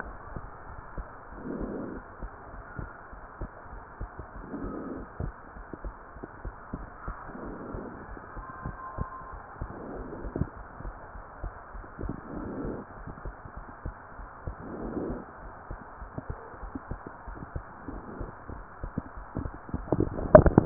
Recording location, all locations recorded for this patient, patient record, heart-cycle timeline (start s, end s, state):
pulmonary valve (PV)
aortic valve (AV)+pulmonary valve (PV)+tricuspid valve (TV)
#Age: Child
#Sex: Female
#Height: 131.0 cm
#Weight: 44.9 kg
#Pregnancy status: False
#Murmur: Absent
#Murmur locations: nan
#Most audible location: nan
#Systolic murmur timing: nan
#Systolic murmur shape: nan
#Systolic murmur grading: nan
#Systolic murmur pitch: nan
#Systolic murmur quality: nan
#Diastolic murmur timing: nan
#Diastolic murmur shape: nan
#Diastolic murmur grading: nan
#Diastolic murmur pitch: nan
#Diastolic murmur quality: nan
#Outcome: Normal
#Campaign: 2015 screening campaign
0.00	0.04	diastole
0.04	0.18	S1
0.18	0.34	systole
0.34	0.50	S2
0.50	0.74	diastole
0.74	0.84	S1
0.84	0.96	systole
0.96	1.10	S2
1.10	1.32	diastole
1.32	1.40	S1
1.40	1.54	systole
1.54	1.68	S2
1.68	1.86	diastole
1.86	2.02	S1
2.02	2.20	systole
2.20	2.30	S2
2.30	2.54	diastole
2.54	2.64	S1
2.64	2.76	systole
2.76	2.88	S2
2.88	3.12	diastole
3.12	3.22	S1
3.22	3.40	systole
3.40	3.50	S2
3.50	3.72	diastole
3.72	3.82	S1
3.82	4.00	systole
4.00	4.10	S2
4.10	4.36	diastole
4.36	4.44	S1
4.44	4.58	systole
4.58	4.70	S2
4.70	4.91	diastole
4.91	5.06	S1
5.06	5.20	systole
5.20	5.34	S2
5.34	5.56	diastole
5.56	5.66	S1
5.66	5.82	systole
5.82	5.94	S2
5.94	6.16	diastole
6.16	6.28	S1
6.28	6.43	systole
6.43	6.58	S2
6.58	6.77	diastole
6.77	6.88	S1
6.88	7.06	systole
7.06	7.16	S2
7.16	7.44	diastole
7.44	7.58	S1
7.58	7.72	systole
7.72	7.88	S2
7.88	8.10	diastole
8.10	8.22	S1
8.22	8.36	systole
8.36	8.46	S2
8.46	8.66	diastole
8.66	8.78	S1
8.78	9.00	systole
9.00	9.12	S2
9.12	9.34	diastole
9.34	9.42	S1
9.42	9.60	systole
9.60	9.72	S2
9.72	9.92	diastole
9.92	10.08	S1
10.08	10.24	systole
10.24	10.34	S2
10.34	10.58	diastole
10.58	10.68	S1
10.68	10.84	systole
10.84	10.96	S2
10.96	11.16	diastole
11.16	11.24	S1
11.24	11.40	systole
11.40	11.54	S2
11.54	11.74	diastole
11.74	11.84	S1
11.84	12.00	systole
12.00	12.14	S2
12.14	12.34	diastole
12.34	12.50	S1
12.50	12.66	systole
12.66	12.80	S2
12.80	13.00	diastole
13.00	13.12	S1
13.12	13.26	systole
13.26	13.36	S2
13.36	13.58	diastole
13.58	13.68	S1
13.68	13.86	systole
13.86	13.96	S2
13.96	14.20	diastole
14.20	14.28	S1
14.28	14.44	systole
14.44	14.58	S2
14.58	14.80	diastole
14.80	14.96	S1
14.96	15.06	systole
15.06	15.20	S2
15.20	15.44	diastole
15.44	15.52	S1
15.52	15.70	systole
15.70	15.80	S2
15.80	16.00	diastole
16.00	16.08	S1
16.08	16.24	systole
16.24	16.38	S2
16.38	16.62	diastole
16.62	16.74	S1
16.74	16.92	systole
16.92	17.02	S2
17.02	17.26	diastole
17.26	17.38	S1
17.38	17.50	systole
17.50	17.62	S2
17.62	17.88	diastole
17.88	18.04	S1
18.04	18.18	systole
18.18	18.30	S2
18.30	18.52	diastole
18.52	18.66	S1
18.66	18.82	systole
18.82	18.94	S2
18.94	19.16	diastole
19.16	19.26	S1
19.26	19.36	systole
19.36	19.46	S2
19.46	19.70	diastole